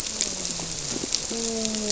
{"label": "biophony, grouper", "recorder": "SoundTrap 300"}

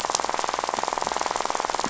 {"label": "biophony, rattle", "recorder": "SoundTrap 500"}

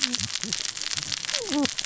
{"label": "biophony, cascading saw", "recorder": "SoundTrap 600 or HydroMoth"}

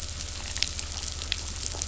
{"label": "anthrophony, boat engine", "recorder": "SoundTrap 500"}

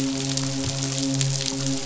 {"label": "biophony, midshipman", "recorder": "SoundTrap 500"}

